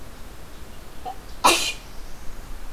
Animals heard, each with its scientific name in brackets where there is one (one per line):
Black-throated Blue Warbler (Setophaga caerulescens)